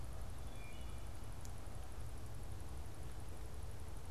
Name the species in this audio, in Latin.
Hylocichla mustelina